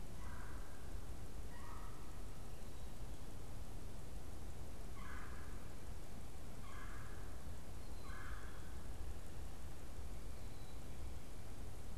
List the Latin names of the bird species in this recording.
Melanerpes carolinus, Poecile atricapillus